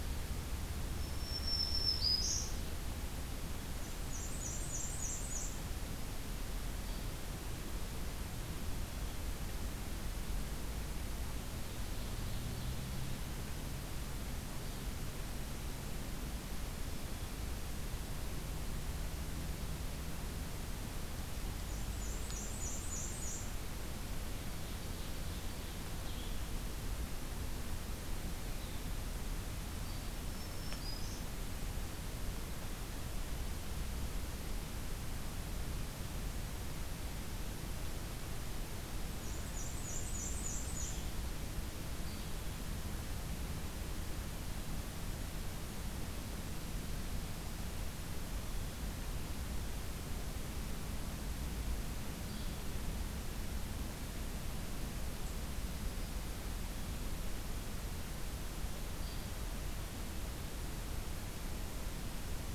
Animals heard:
Black-and-white Warbler (Mniotilta varia), Blue-headed Vireo (Vireo solitarius), Ovenbird (Seiurus aurocapilla), Yellow-bellied Flycatcher (Empidonax flaviventris), Black-throated Green Warbler (Setophaga virens)

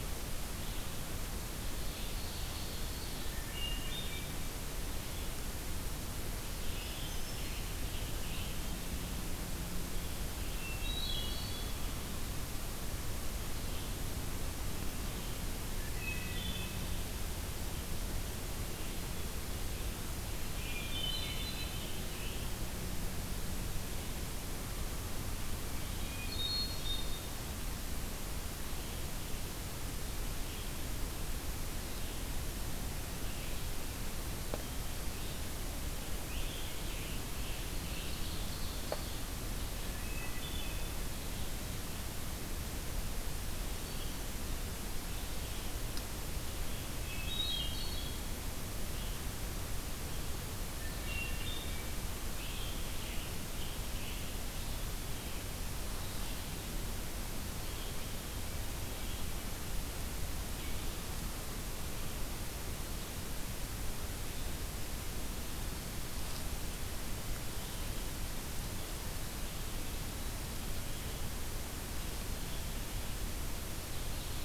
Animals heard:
Ovenbird (Seiurus aurocapilla), Scarlet Tanager (Piranga olivacea), Hermit Thrush (Catharus guttatus)

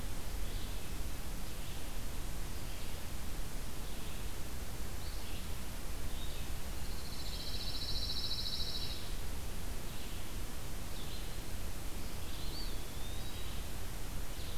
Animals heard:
Pine Warbler (Setophaga pinus), Red-eyed Vireo (Vireo olivaceus), Eastern Wood-Pewee (Contopus virens)

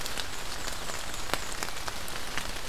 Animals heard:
Black-and-white Warbler (Mniotilta varia)

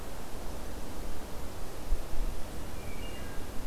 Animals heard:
Wood Thrush (Hylocichla mustelina)

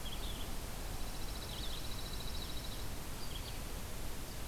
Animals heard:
Pine Warbler (Setophaga pinus), Red-eyed Vireo (Vireo olivaceus)

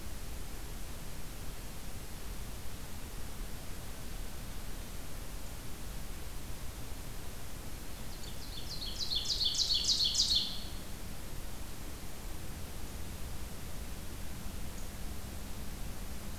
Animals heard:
Ovenbird (Seiurus aurocapilla)

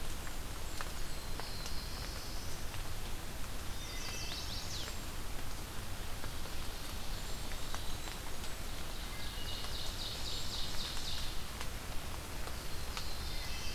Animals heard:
Ovenbird (Seiurus aurocapilla), Wood Thrush (Hylocichla mustelina), Cedar Waxwing (Bombycilla cedrorum), Black-throated Blue Warbler (Setophaga caerulescens), Chestnut-sided Warbler (Setophaga pensylvanica), Eastern Wood-Pewee (Contopus virens), Blackburnian Warbler (Setophaga fusca)

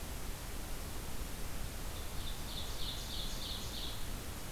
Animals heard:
Ovenbird (Seiurus aurocapilla)

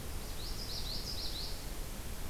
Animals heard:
Common Yellowthroat (Geothlypis trichas)

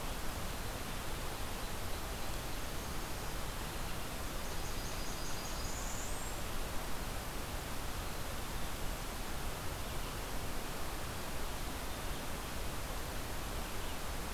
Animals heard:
Blackburnian Warbler (Setophaga fusca)

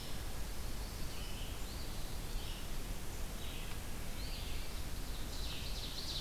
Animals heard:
Red-eyed Vireo (Vireo olivaceus), Eastern Phoebe (Sayornis phoebe), Ovenbird (Seiurus aurocapilla)

